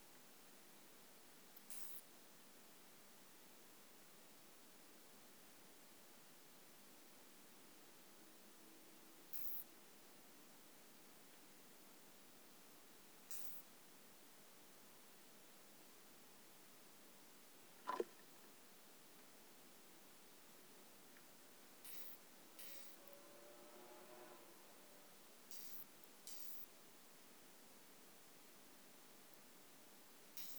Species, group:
Isophya modestior
Orthoptera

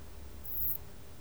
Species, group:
Poecilimon sanctipauli
Orthoptera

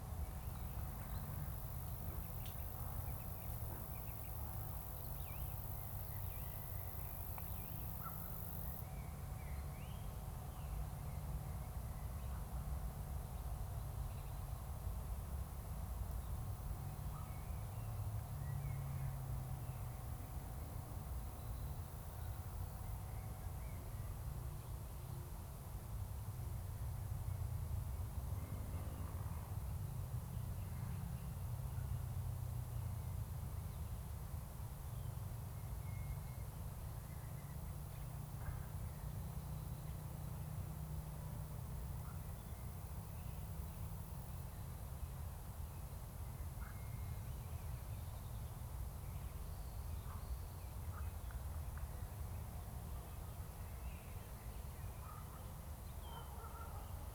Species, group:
Roeseliana roeselii
Orthoptera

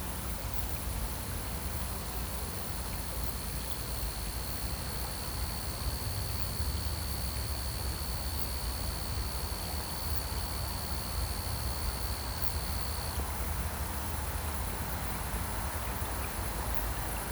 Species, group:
Pteronemobius lineolatus
Orthoptera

